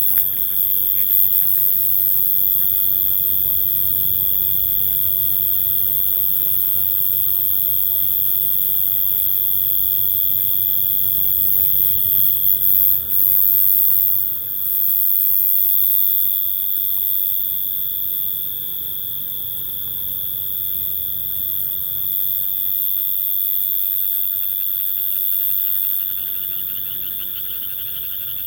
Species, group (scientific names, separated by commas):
Oecanthus dulcisonans, Orthoptera